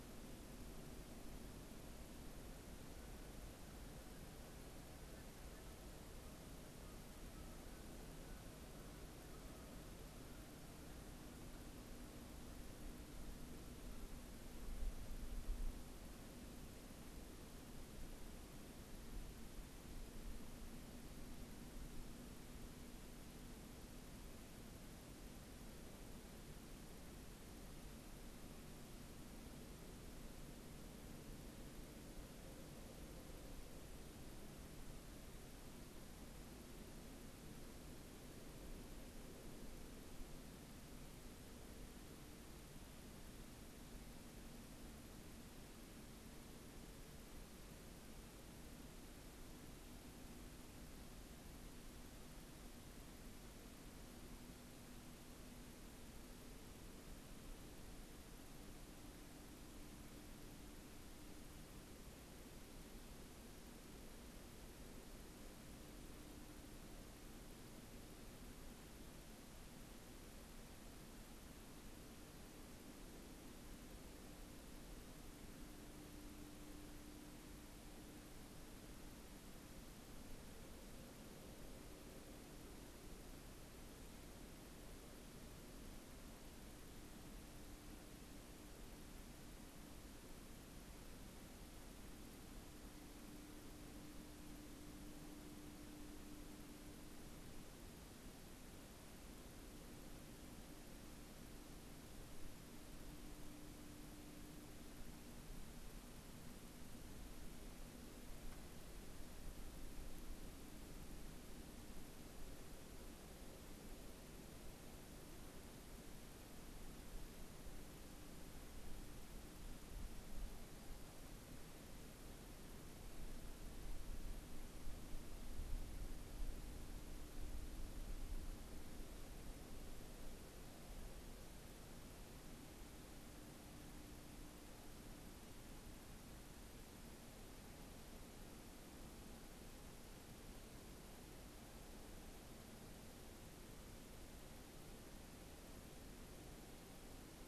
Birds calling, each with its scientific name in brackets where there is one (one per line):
Canada Goose (Branta canadensis)